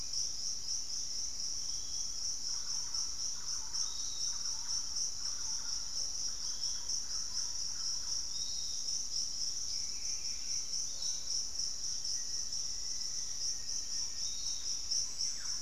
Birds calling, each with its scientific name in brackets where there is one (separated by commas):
unidentified bird, Black-faced Antthrush (Formicarius analis), Piratic Flycatcher (Legatus leucophaius), Thrush-like Wren (Campylorhynchus turdinus)